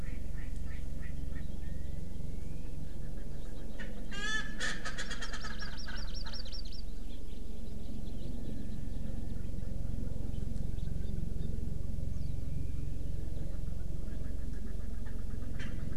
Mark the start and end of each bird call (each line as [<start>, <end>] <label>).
[0.00, 1.41] Erckel's Francolin (Pternistis erckelii)
[3.71, 6.51] Erckel's Francolin (Pternistis erckelii)
[5.01, 6.81] Hawaii Amakihi (Chlorodrepanis virens)
[7.11, 7.21] Hawaii Amakihi (Chlorodrepanis virens)
[7.71, 9.31] House Finch (Haemorhous mexicanus)
[11.01, 11.11] Hawaii Amakihi (Chlorodrepanis virens)
[11.41, 11.51] Hawaii Amakihi (Chlorodrepanis virens)
[15.61, 15.81] Erckel's Francolin (Pternistis erckelii)